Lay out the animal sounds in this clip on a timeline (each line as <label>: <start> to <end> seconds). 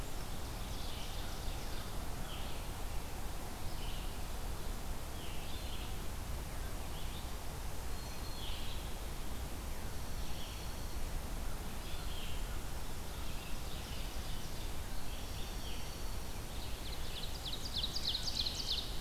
Red-eyed Vireo (Vireo olivaceus): 0.0 to 19.0 seconds
Ovenbird (Seiurus aurocapilla): 0.1 to 2.0 seconds
Black-throated Green Warbler (Setophaga virens): 7.7 to 8.7 seconds
Dark-eyed Junco (Junco hyemalis): 9.9 to 11.1 seconds
Ovenbird (Seiurus aurocapilla): 13.2 to 14.8 seconds
Dark-eyed Junco (Junco hyemalis): 15.0 to 16.4 seconds
Ovenbird (Seiurus aurocapilla): 16.3 to 19.0 seconds